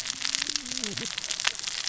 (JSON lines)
{"label": "biophony, cascading saw", "recorder": "SoundTrap 600 or HydroMoth"}